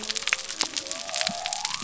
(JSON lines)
{"label": "biophony", "recorder": "SoundTrap 300"}